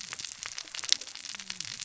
{"label": "biophony, cascading saw", "recorder": "SoundTrap 600 or HydroMoth"}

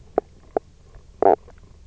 {"label": "biophony, knock croak", "recorder": "SoundTrap 300"}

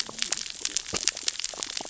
{"label": "biophony, cascading saw", "recorder": "SoundTrap 600 or HydroMoth"}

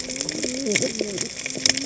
{"label": "biophony, cascading saw", "recorder": "HydroMoth"}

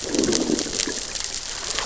{"label": "biophony, growl", "recorder": "SoundTrap 600 or HydroMoth"}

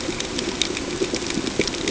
{"label": "ambient", "recorder": "HydroMoth"}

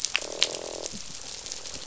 {"label": "biophony, croak", "recorder": "SoundTrap 500"}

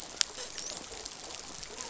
{"label": "biophony, dolphin", "recorder": "SoundTrap 500"}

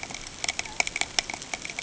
{"label": "ambient", "recorder": "HydroMoth"}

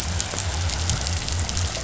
{"label": "biophony", "recorder": "SoundTrap 500"}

